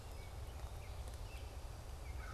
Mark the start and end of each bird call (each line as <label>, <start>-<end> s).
Baltimore Oriole (Icterus galbula), 0.0-2.3 s